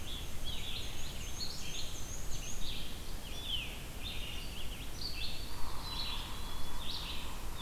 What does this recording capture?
Black-and-white Warbler, Red-eyed Vireo, Eastern Wood-Pewee, Yellow-bellied Sapsucker, Black-capped Chickadee